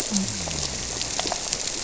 {"label": "biophony", "recorder": "SoundTrap 300"}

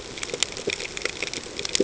{"label": "ambient", "recorder": "HydroMoth"}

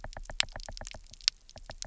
{"label": "biophony, knock", "recorder": "SoundTrap 300"}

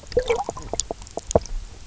{"label": "biophony, knock croak", "recorder": "SoundTrap 300"}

